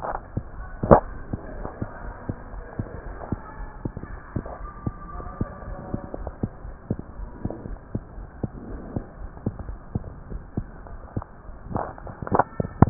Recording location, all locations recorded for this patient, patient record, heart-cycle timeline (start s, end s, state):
aortic valve (AV)
aortic valve (AV)+pulmonary valve (PV)+tricuspid valve (TV)+mitral valve (MV)
#Age: Child
#Sex: Female
#Height: 98.0 cm
#Weight: 17.66 kg
#Pregnancy status: False
#Murmur: Absent
#Murmur locations: nan
#Most audible location: nan
#Systolic murmur timing: nan
#Systolic murmur shape: nan
#Systolic murmur grading: nan
#Systolic murmur pitch: nan
#Systolic murmur quality: nan
#Diastolic murmur timing: nan
#Diastolic murmur shape: nan
#Diastolic murmur grading: nan
#Diastolic murmur pitch: nan
#Diastolic murmur quality: nan
#Outcome: Abnormal
#Campaign: 2015 screening campaign
0.00	4.60	unannotated
4.60	4.70	S1
4.70	4.82	systole
4.82	4.94	S2
4.94	5.14	diastole
5.14	5.26	S1
5.26	5.36	systole
5.36	5.48	S2
5.48	5.66	diastole
5.66	5.78	S1
5.78	5.92	systole
5.92	6.02	S2
6.02	6.18	diastole
6.18	6.34	S1
6.34	6.42	systole
6.42	6.52	S2
6.52	6.64	diastole
6.64	6.74	S1
6.74	6.86	systole
6.86	7.00	S2
7.00	7.18	diastole
7.18	7.32	S1
7.32	7.42	systole
7.42	7.54	S2
7.54	7.66	diastole
7.66	7.78	S1
7.78	7.91	systole
7.91	8.04	S2
8.04	8.16	diastole
8.16	8.28	S1
8.28	8.40	systole
8.40	8.52	S2
8.52	8.68	diastole
8.68	8.80	S1
8.80	8.94	systole
8.94	9.06	S2
9.06	9.17	diastole
9.17	9.30	S1
9.30	9.42	systole
9.42	9.54	S2
9.54	9.66	diastole
9.66	9.80	S1
9.80	9.92	systole
9.92	10.04	S2
10.04	10.28	diastole
10.28	10.42	S1
10.42	10.53	systole
10.53	10.67	S2
10.67	10.87	diastole
10.87	11.00	S1
11.00	11.13	systole
11.13	11.24	S2
11.24	12.90	unannotated